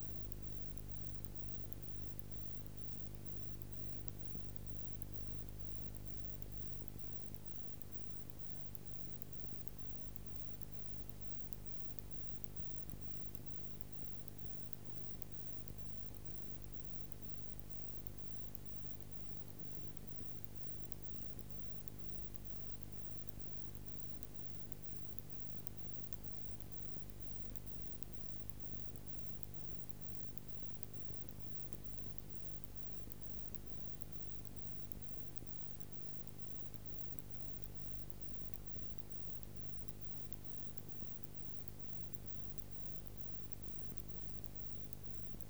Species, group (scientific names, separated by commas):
Isophya kraussii, Orthoptera